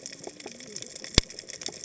{"label": "biophony, cascading saw", "recorder": "HydroMoth"}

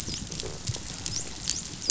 {"label": "biophony, dolphin", "recorder": "SoundTrap 500"}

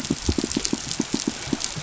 {"label": "biophony, pulse", "recorder": "SoundTrap 500"}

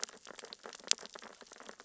{"label": "biophony, sea urchins (Echinidae)", "recorder": "SoundTrap 600 or HydroMoth"}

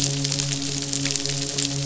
{"label": "biophony, midshipman", "recorder": "SoundTrap 500"}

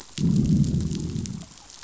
{"label": "biophony, growl", "recorder": "SoundTrap 500"}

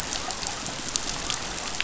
{"label": "biophony", "recorder": "SoundTrap 500"}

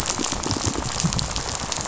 {"label": "biophony, rattle", "recorder": "SoundTrap 500"}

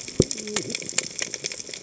{"label": "biophony, cascading saw", "recorder": "HydroMoth"}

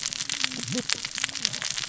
{"label": "biophony, cascading saw", "recorder": "SoundTrap 600 or HydroMoth"}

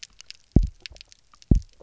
{"label": "biophony, double pulse", "recorder": "SoundTrap 300"}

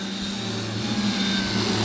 {"label": "anthrophony, boat engine", "recorder": "SoundTrap 500"}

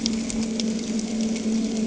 {"label": "anthrophony, boat engine", "recorder": "HydroMoth"}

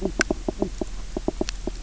{"label": "biophony, knock croak", "recorder": "SoundTrap 300"}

